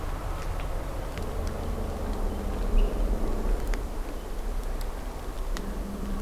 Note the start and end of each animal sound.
[2.72, 2.85] Hermit Thrush (Catharus guttatus)

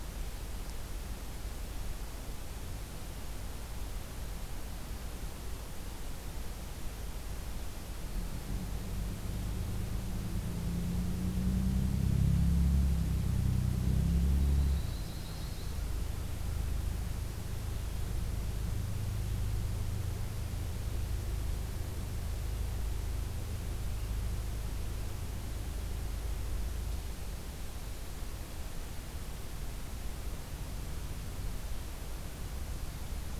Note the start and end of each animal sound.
[14.25, 15.90] Yellow-rumped Warbler (Setophaga coronata)

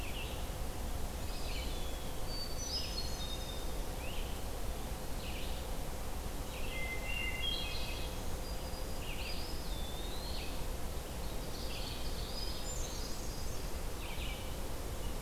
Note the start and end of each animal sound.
[0.00, 15.22] Red-eyed Vireo (Vireo olivaceus)
[1.14, 2.32] Eastern Wood-Pewee (Contopus virens)
[2.07, 3.80] Hermit Thrush (Catharus guttatus)
[3.89, 4.30] Great Crested Flycatcher (Myiarchus crinitus)
[6.58, 8.09] Hermit Thrush (Catharus guttatus)
[7.78, 9.23] Black-throated Green Warbler (Setophaga virens)
[9.06, 10.57] Eastern Wood-Pewee (Contopus virens)
[12.20, 13.57] Hermit Thrush (Catharus guttatus)

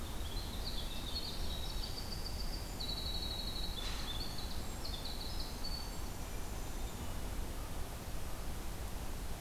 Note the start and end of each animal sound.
[0.00, 6.96] Winter Wren (Troglodytes hiemalis)

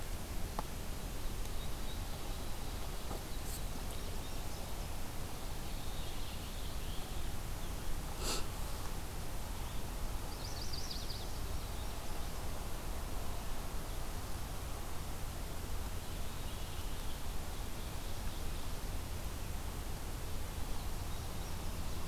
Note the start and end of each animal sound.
[2.97, 4.97] Indigo Bunting (Passerina cyanea)
[5.16, 7.57] Rose-breasted Grosbeak (Pheucticus ludovicianus)
[10.18, 11.34] Chestnut-sided Warbler (Setophaga pensylvanica)

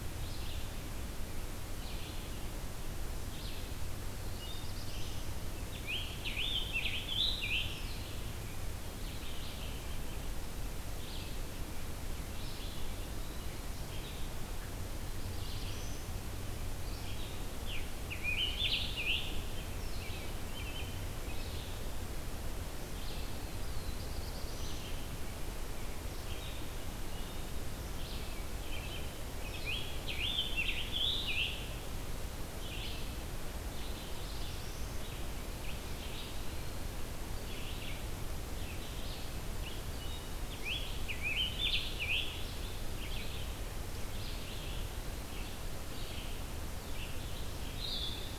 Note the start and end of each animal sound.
[0.00, 4.20] Blue-headed Vireo (Vireo solitarius)
[4.34, 5.30] Black-throated Blue Warbler (Setophaga caerulescens)
[5.51, 8.28] Scarlet Tanager (Piranga olivacea)
[7.76, 17.66] Blue-headed Vireo (Vireo solitarius)
[15.13, 16.14] Black-throated Blue Warbler (Setophaga caerulescens)
[17.55, 19.59] Scarlet Tanager (Piranga olivacea)
[19.68, 48.38] Blue-headed Vireo (Vireo solitarius)
[23.55, 24.87] Black-throated Blue Warbler (Setophaga caerulescens)
[29.56, 31.81] Scarlet Tanager (Piranga olivacea)
[33.52, 35.02] Black-throated Blue Warbler (Setophaga caerulescens)
[35.54, 36.93] Eastern Wood-Pewee (Contopus virens)
[40.36, 42.48] Scarlet Tanager (Piranga olivacea)

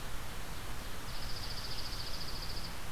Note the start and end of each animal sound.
[0.86, 2.91] Dark-eyed Junco (Junco hyemalis)

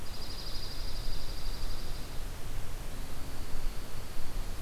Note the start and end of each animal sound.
[0.00, 2.15] Dark-eyed Junco (Junco hyemalis)
[2.90, 4.62] Dark-eyed Junco (Junco hyemalis)

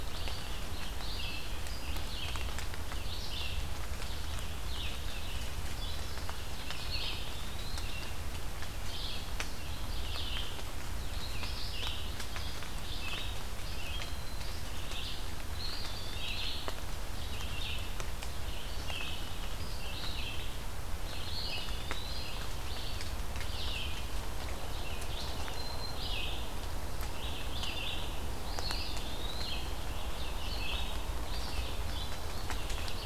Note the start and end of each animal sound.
[0.00, 33.06] Red-eyed Vireo (Vireo olivaceus)
[6.93, 7.85] Eastern Wood-Pewee (Contopus virens)
[13.43, 14.59] Black-throated Green Warbler (Setophaga virens)
[15.60, 16.73] Eastern Wood-Pewee (Contopus virens)
[21.29, 22.37] Eastern Wood-Pewee (Contopus virens)
[25.11, 26.27] Black-throated Green Warbler (Setophaga virens)
[28.65, 29.62] Eastern Wood-Pewee (Contopus virens)

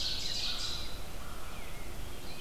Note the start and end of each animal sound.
[0.00, 1.04] Ovenbird (Seiurus aurocapilla)
[0.00, 1.70] American Crow (Corvus brachyrhynchos)
[0.00, 2.40] Rose-breasted Grosbeak (Pheucticus ludovicianus)

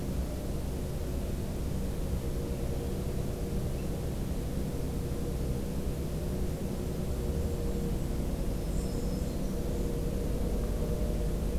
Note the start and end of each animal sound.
[6.48, 9.43] Golden-crowned Kinglet (Regulus satrapa)
[8.58, 9.53] Black-throated Green Warbler (Setophaga virens)

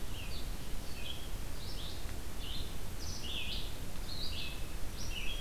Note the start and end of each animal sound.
[0.00, 5.41] Red-eyed Vireo (Vireo olivaceus)

